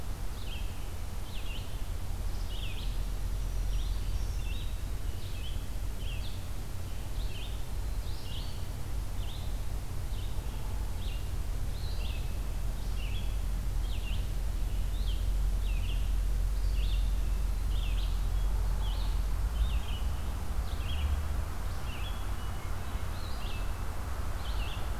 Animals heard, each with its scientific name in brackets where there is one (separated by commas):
Black-throated Green Warbler (Setophaga virens), Hermit Thrush (Catharus guttatus), Red-eyed Vireo (Vireo olivaceus)